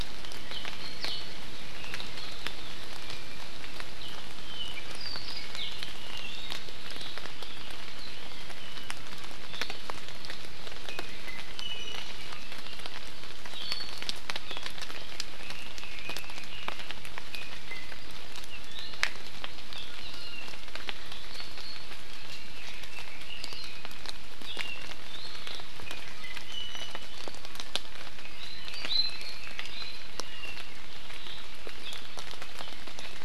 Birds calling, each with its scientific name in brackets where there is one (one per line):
Apapane (Himatione sanguinea)
Hawaii Amakihi (Chlorodrepanis virens)
Red-billed Leiothrix (Leiothrix lutea)
Iiwi (Drepanis coccinea)